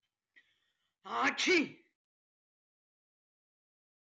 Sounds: Sneeze